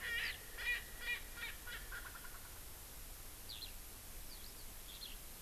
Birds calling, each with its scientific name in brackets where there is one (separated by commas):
Eurasian Skylark (Alauda arvensis), Erckel's Francolin (Pternistis erckelii)